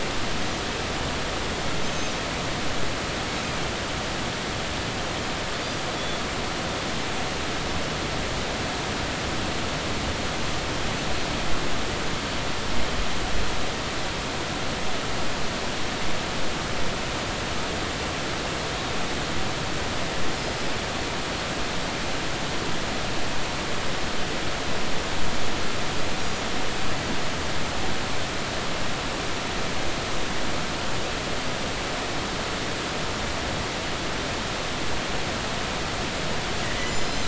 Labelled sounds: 1.8	2.1	Pacific white-sided dolphin, 2.5 to 6.5 kHz
36.6	37.2	Pacific white-sided dolphin, 1.8 to 7.3 kHz

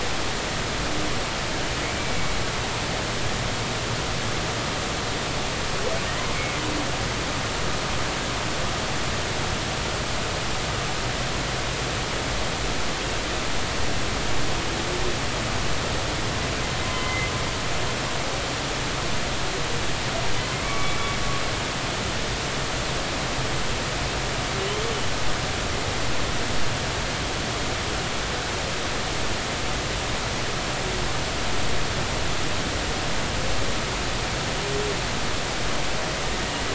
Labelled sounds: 1.8	2.3	humpback whale, 2.1 to 2.4 kHz
16.8	17.3	humpback whale, 0.96 to 2.2 kHz
20.6	21.2	humpback whale, 1.1 to 2.3 kHz

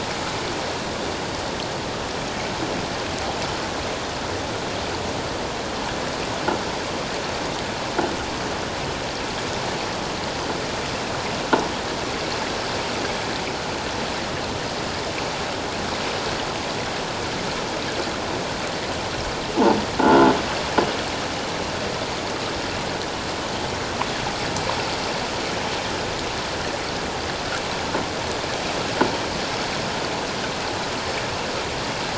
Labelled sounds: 20.0	20.3	croaking sound likely from a nearby submerged object, 1.3 to 1.5 kHz

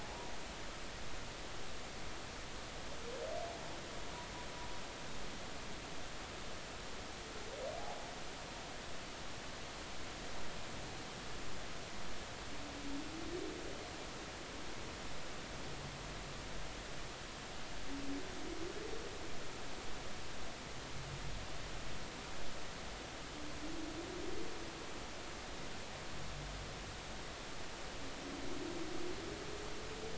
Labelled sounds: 0.0	0.3	humpback whale, 0.80 to 1.1 kHz
7.8	8.1	humpback whale, 0.80 to 0.93 kHz

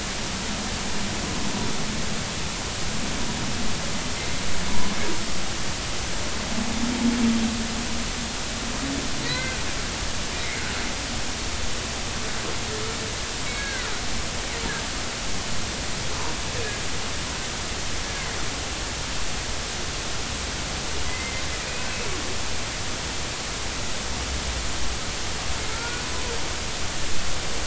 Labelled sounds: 9.2	9.6	humpback whale, 1.4 to 2.1 kHz
13.6	13.9	humpback whale, 1.3 to 1.7 kHz
21.1	21.9	humpback whale, 2.0 to 2.6 kHz
25.7	26.0	humpback whale, 1.3 to 1.5 kHz

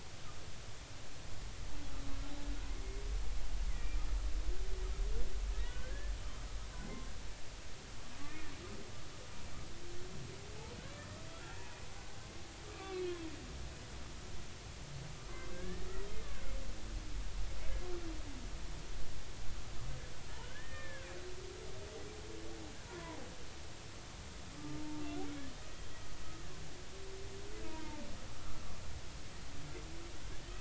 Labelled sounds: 3.7	4.0	humpback whale, 1.8 to 2.5 kHz
5.7	6.1	humpback whale, 1.4 to 1.8 kHz
8.3	8.5	humpback whale, 1.7 to 1.9 kHz
11.3	11.9	humpback whale, 0.83 to 2.6 kHz
12.7	13.2	humpback whale, 1.1 to 2.8 kHz
15.3	15.9	humpback whale, 0.99 to 2.2 kHz
20.4	21.1	humpback whale, 1.4 to 2.5 kHz
22.9	23.2	humpback whale, 0.90 to 1.1 kHz
28.4	28.6	humpback whale, 1.1 to 1.4 kHz

